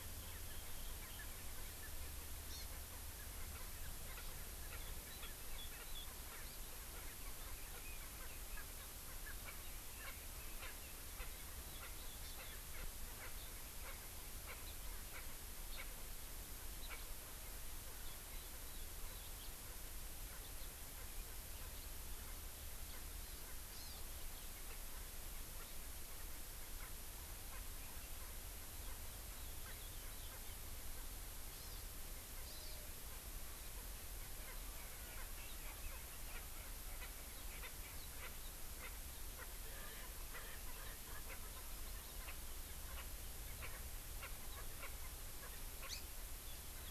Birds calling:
Hawaii Amakihi (Chlorodrepanis virens), Erckel's Francolin (Pternistis erckelii)

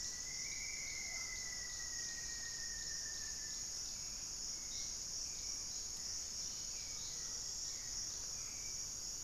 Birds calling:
Mealy Parrot (Amazona farinosa), Hauxwell's Thrush (Turdus hauxwelli), Rufous-fronted Antthrush (Formicarius rufifrons), Cobalt-winged Parakeet (Brotogeris cyanoptera)

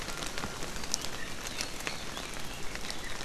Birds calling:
Iiwi (Drepanis coccinea)

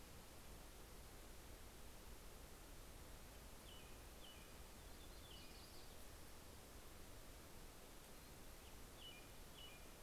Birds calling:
Yellow-rumped Warbler (Setophaga coronata), American Robin (Turdus migratorius)

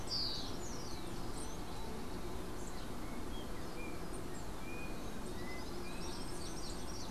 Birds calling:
Yellow-backed Oriole (Icterus chrysater), Rufous-collared Sparrow (Zonotrichia capensis), Yellow-faced Grassquit (Tiaris olivaceus)

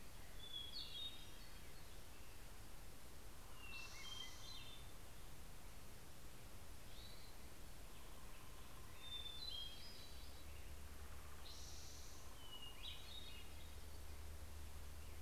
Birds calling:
Hermit Thrush (Catharus guttatus), Spotted Towhee (Pipilo maculatus)

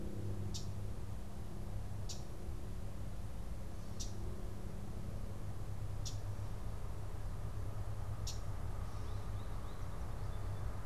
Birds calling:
Common Yellowthroat (Geothlypis trichas), American Goldfinch (Spinus tristis)

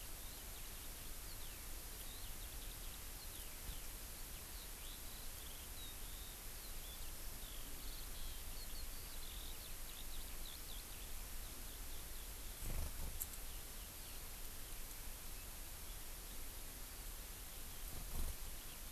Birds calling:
Eurasian Skylark (Alauda arvensis)

